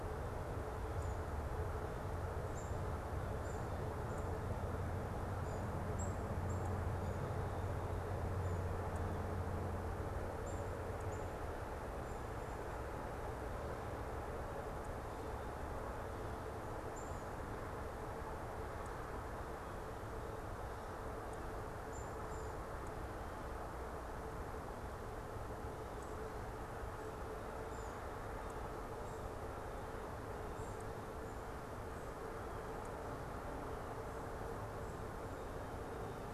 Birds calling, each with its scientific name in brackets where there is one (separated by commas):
Black-capped Chickadee (Poecile atricapillus)